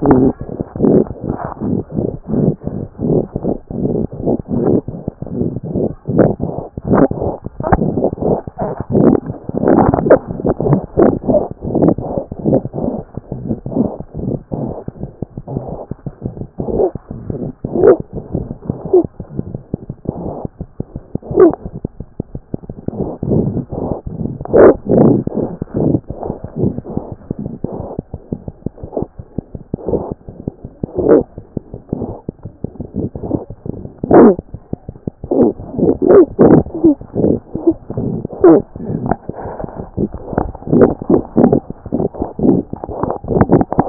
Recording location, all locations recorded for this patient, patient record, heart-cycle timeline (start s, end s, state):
mitral valve (MV)
mitral valve (MV)
#Age: Infant
#Sex: Female
#Height: 56.0 cm
#Weight: 7.5 kg
#Pregnancy status: False
#Murmur: Unknown
#Murmur locations: nan
#Most audible location: nan
#Systolic murmur timing: nan
#Systolic murmur shape: nan
#Systolic murmur grading: nan
#Systolic murmur pitch: nan
#Systolic murmur quality: nan
#Diastolic murmur timing: nan
#Diastolic murmur shape: nan
#Diastolic murmur grading: nan
#Diastolic murmur pitch: nan
#Diastolic murmur quality: nan
#Outcome: Abnormal
#Campaign: 2014 screening campaign
0.00	15.02	unannotated
15.02	15.07	S1
15.07	15.22	systole
15.22	15.26	S2
15.26	15.37	diastole
15.37	15.42	S1
15.42	15.56	systole
15.56	15.60	S2
15.60	15.71	diastole
15.71	15.77	S1
15.77	15.91	systole
15.91	15.95	S2
15.95	16.06	diastole
16.06	16.11	S1
16.11	16.24	systole
16.24	16.28	S2
16.28	16.40	diastole
16.40	16.46	S1
16.46	16.60	systole
16.60	16.64	S2
16.64	16.79	diastole
16.79	43.89	unannotated